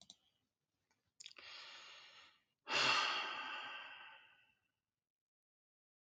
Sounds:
Sigh